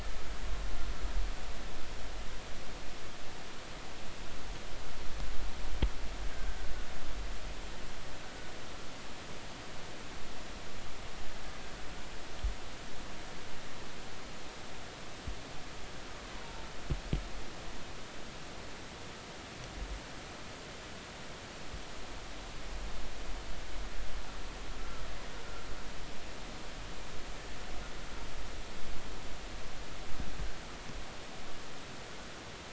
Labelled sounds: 6.3	6.6	killer whale, Bigg's (transient), 1.5 to 1.7 kHz
24.8	25.0	killer whale, Bigg's (transient), 1.3 to 1.4 kHz

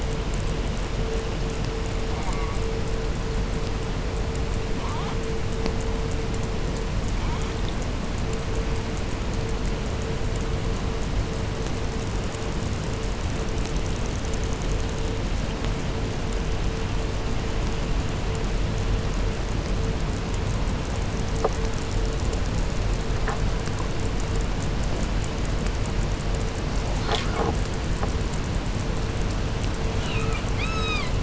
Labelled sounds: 2.0	2.7	killer whale, southern resident, J pod, call S04, 0.52 to 2.5 kHz
4.7	5.2	killer whale, southern resident, 0.46 to 4.3 kHz
7.0	7.7	killer whale, southern resident, 0.61 to 4.5 kHz
29.9	31.2	killer whale, 0.69 to 8.0 kHz

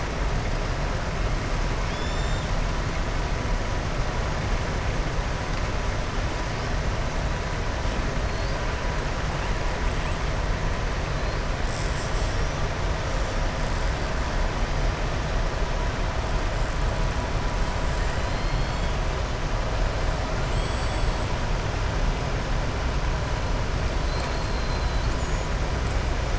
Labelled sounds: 1.8	2.5	killer whale, southern resident, 3.2 to 7.3 kHz
20.4	21.3	killer whale, southern resident, 2.9 to 8.0 kHz
24.0	24.9	killer whale, southern resident, 3.7 to 5.0 kHz

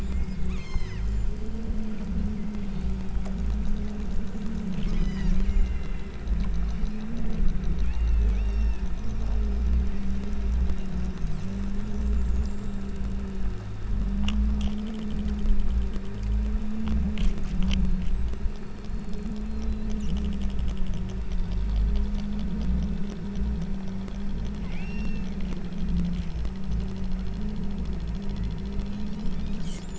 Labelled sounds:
0.0	1.6	killer whale, southern Alaska resident, 1.6 to 8.0 kHz
2.3	3.1	killer whale, southern Alaska resident, 1.8 to 5.0 kHz
4.8	6.3	killer whale, southern Alaska resident, 1.6 to 8.0 kHz
6.7	7.2	killer whale, southern Alaska resident, 1.9 to 5.5 kHz
7.8	9.0	killer whale, southern Alaska resident, 1.6 to 5.6 kHz
24.6	25.4	killer whale, southern Alaska resident, 1.7 to 6.5 kHz
28.2	28.6	killer whale, southern Alaska resident, 1.6 to 2.6 kHz
29.0	29.9	killer whale, southern Alaska resident, 1.9 to 8.0 kHz

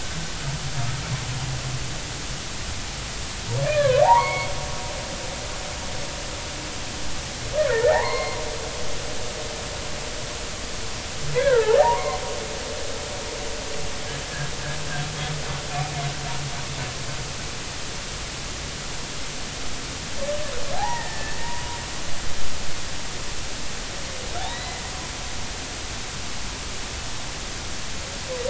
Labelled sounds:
3.6	4.5	humpback whale, 0.80 to 3.4 kHz
7.7	8.4	humpback whale, 0.80 to 4.3 kHz
11.4	12.2	humpback whale, 0.80 to 2.3 kHz
20.7	21.4	humpback whale, 0.80 to 2.0 kHz
24.5	24.8	humpback whale, 1.9 to 4.1 kHz

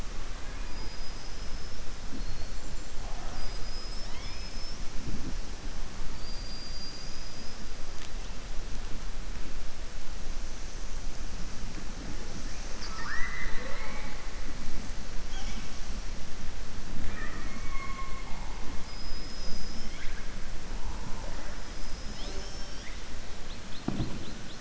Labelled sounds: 0.6	1.8	killer whale, southern resident, 4.9 to 5.8 kHz
6.1	7.6	killer whale, southern resident, 4.2 to 5.8 kHz
12.4	14.2	killer whale, southern resident, 0.52 to 6.3 kHz

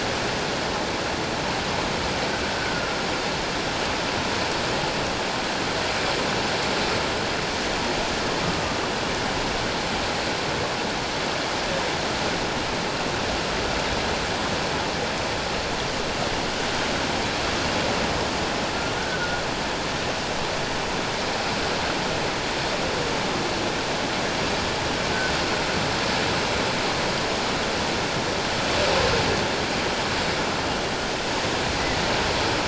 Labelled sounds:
2.5	2.8	humpback whale, 1.4 to 1.6 kHz
18.9	19.4	humpback whale, 1.4 to 1.6 kHz

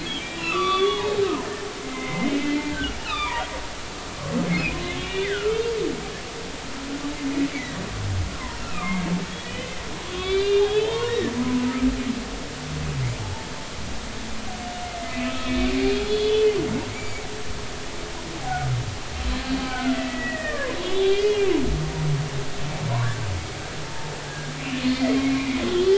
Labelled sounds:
0.0	1.2	humpback whale, 1.1 to 4.7 kHz
1.8	3.5	humpback whale, 0.90 to 4.2 kHz
5.0	5.6	humpback whale, 1.2 to 3.7 kHz
7.5	11.7	humpback whale, 0.86 to 4.8 kHz
13.2	13.5	humpback whale, 0.83 to 0.96 kHz
14.8	15.8	humpback whale, 1.2 to 2.8 kHz
16.1	16.5	humpback whale, 2.9 to 3.5 kHz
16.9	17.3	humpback whale, 2.1 to 7.0 kHz
18.4	18.7	humpback whale, 0.80 to 0.86 kHz
19.6	20.8	humpback whale, 0.96 to 2.6 kHz
21.0	21.5	humpback whale, 2.0 to 3.0 kHz
22.9	23.2	humpback whale, 0.90 to 1.2 kHz
23.8	24.5	humpback whale, 0.86 to 1.7 kHz
24.9	25.9	humpback whale, 1.9 to 3.5 kHz

